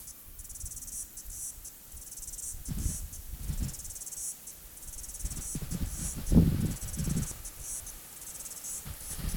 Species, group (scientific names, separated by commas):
Amphipsalta cingulata, Cicadidae